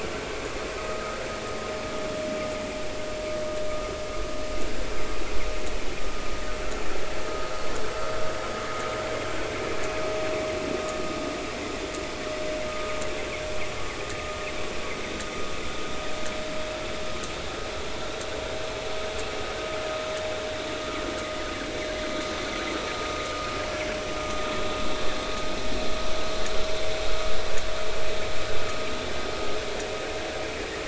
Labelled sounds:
0.8	1.2	vessel noise, 1.2 to 1.4 kHz
12.7	12.9	vessel noise, 1.2 to 1.3 kHz

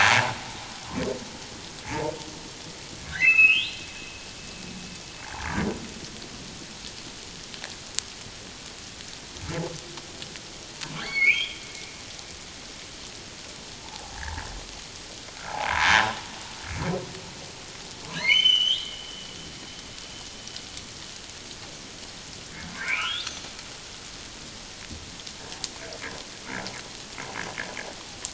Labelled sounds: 3.1	3.7	humpback whale, 1.2 to 4.2 kHz
11.0	11.6	humpback whale, 1.5 to 4.5 kHz
13.8	14.5	humpback whale, 0.78 to 2.0 kHz
15.7	16.2	humpback whale, 0.84 to 1.1 kHz
18.2	18.9	humpback whale, 2.0 to 6.4 kHz
22.8	23.2	humpback whale, 1.2 to 3.1 kHz

